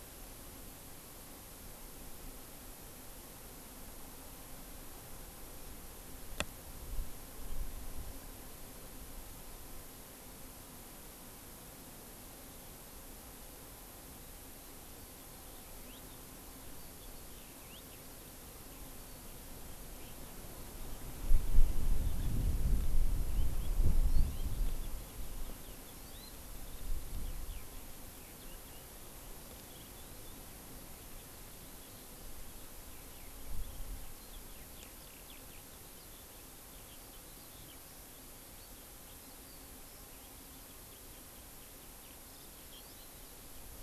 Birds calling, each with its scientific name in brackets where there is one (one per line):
Hawaii Amakihi (Chlorodrepanis virens)
Eurasian Skylark (Alauda arvensis)